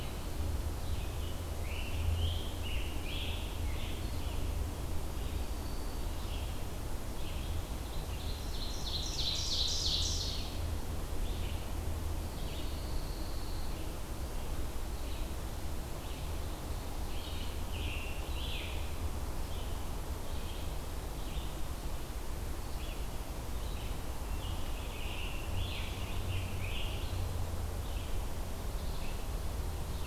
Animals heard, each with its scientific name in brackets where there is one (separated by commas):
Red-eyed Vireo (Vireo olivaceus), Ovenbird (Seiurus aurocapilla), Black-throated Green Warbler (Setophaga virens), Pine Warbler (Setophaga pinus), Scarlet Tanager (Piranga olivacea)